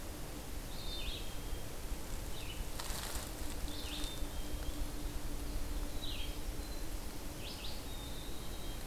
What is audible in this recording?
Red-eyed Vireo, Black-capped Chickadee